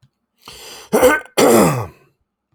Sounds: Throat clearing